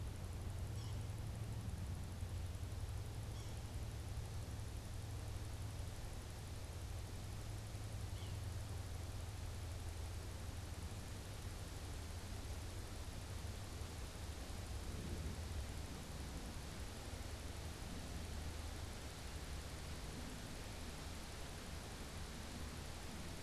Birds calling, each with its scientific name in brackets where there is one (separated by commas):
Yellow-bellied Sapsucker (Sphyrapicus varius)